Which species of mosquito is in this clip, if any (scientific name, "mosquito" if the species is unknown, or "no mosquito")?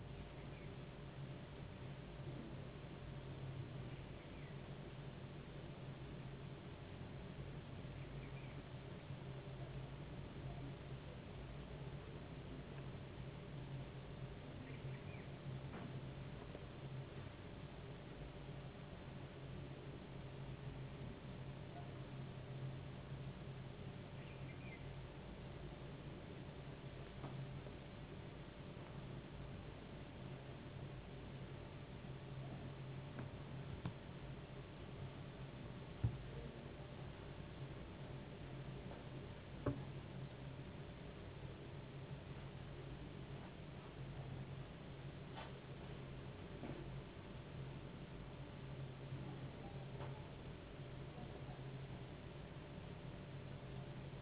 no mosquito